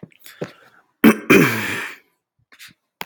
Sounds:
Throat clearing